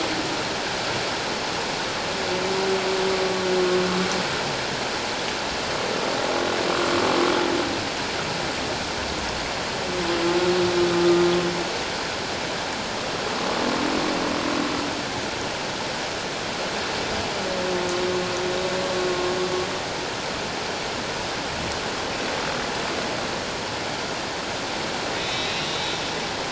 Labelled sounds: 25.2	26.0	humpback whale, 2.6 to 4.0 kHz

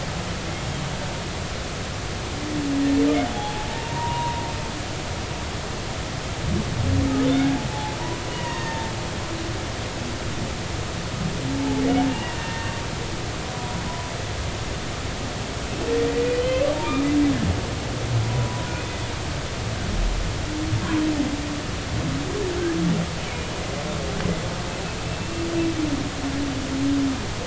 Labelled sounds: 3.3	4.4	humpback whale, 0.80 to 3.4 kHz
7.7	8.0	humpback whale, 0.80 to 0.93 kHz
8.3	8.9	humpback whale, 0.86 to 3.0 kHz
11.5	12.7	humpback whale, 0.80 to 2.9 kHz
13.5	14.1	humpback whale, 0.93 to 1.0 kHz
15.6	17.1	humpback whale, 2.2 to 3.2 kHz
18.2	18.7	humpback whale, 0.93 to 1.0 kHz
23.3	23.5	humpback whale, 2.1 to 2.5 kHz
25.1	25.5	humpback whale, 2.6 to 2.8 kHz

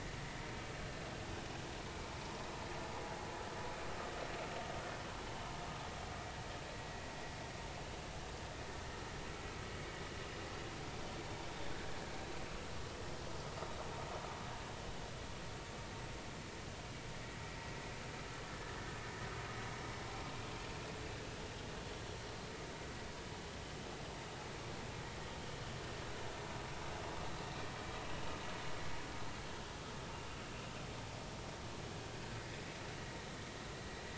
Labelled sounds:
11.7	12.0	vessel noise, 1.5 to 1.8 kHz

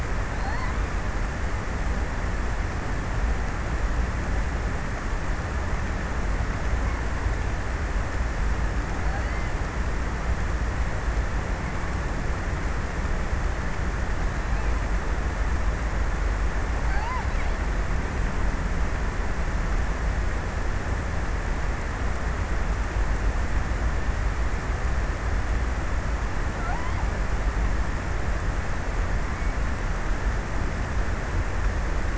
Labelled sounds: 0.0	1.1	killer whale, offshore, 0.51 to 8.0 kHz
8.3	10.4	killer whale, offshore, 0.65 to 4.8 kHz
16.3	17.7	killer whale, offshore, 0.34 to 5.2 kHz
26.0	27.6	killer whale, offshore, 0.39 to 2.1 kHz

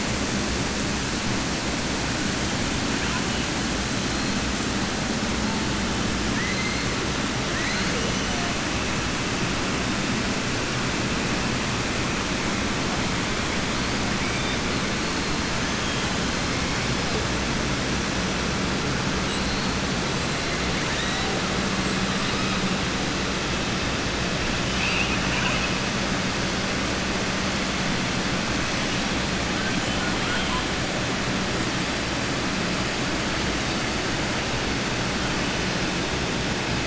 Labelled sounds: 6.3	6.8	killer whale, southern resident, 1.0 to 2.2 kHz
30.2	30.6	killer whale, southern resident, 0.97 to 3.5 kHz

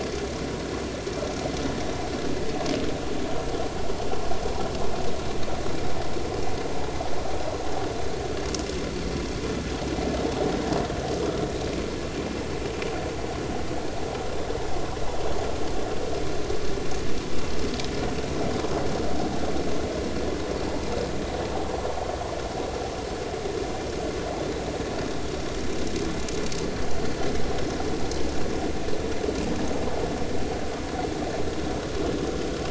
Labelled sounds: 11.2	11.4	vessel noise, 1.2 to 1.4 kHz

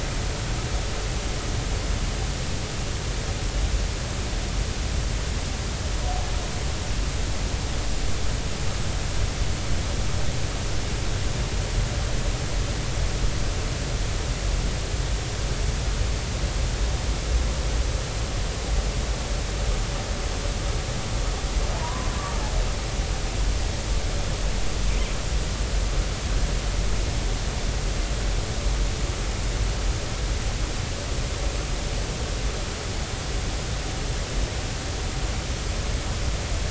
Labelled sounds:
21.7	22.1	humpback whale, 0.83 to 1.2 kHz

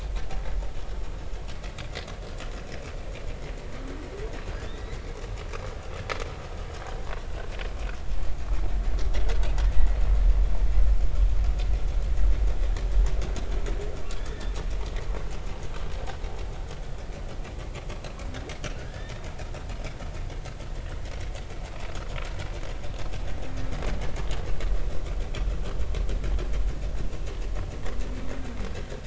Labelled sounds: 4.6	5.0	humpback whale, 3.4 to 4.1 kHz
9.7	10.0	humpback whale, 1.7 to 2.0 kHz
14.2	14.5	humpback whale, 1.6 to 3.8 kHz
18.8	19.1	humpback whale, 1.6 to 1.9 kHz

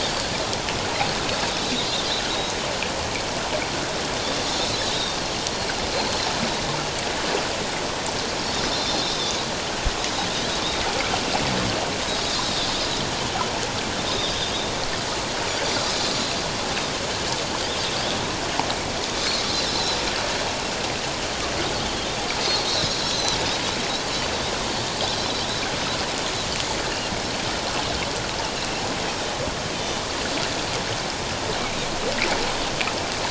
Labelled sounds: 4.8	5.2	Pacific white-sided dolphin, 3.6 to 3.9 kHz
9.0	9.4	Pacific white-sided dolphin, 3.4 to 3.9 kHz
12.1	12.7	Pacific white-sided dolphin, 3.5 to 5.2 kHz
14.1	14.4	Pacific white-sided dolphin, 3.2 to 3.8 kHz
19.4	20.0	Pacific white-sided dolphin, 3.8 to 4.2 kHz
22.6	23.4	Pacific white-sided dolphin, 3.6 to 4.2 kHz
29.8	30.0	Pacific white-sided dolphin, 3.5 to 3.7 kHz

